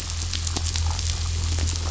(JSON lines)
{"label": "anthrophony, boat engine", "recorder": "SoundTrap 500"}